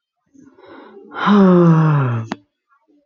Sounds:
Sigh